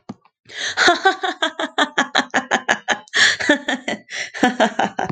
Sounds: Laughter